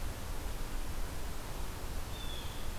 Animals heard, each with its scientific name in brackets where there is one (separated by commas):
Blue Jay (Cyanocitta cristata)